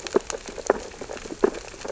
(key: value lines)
label: biophony, sea urchins (Echinidae)
recorder: SoundTrap 600 or HydroMoth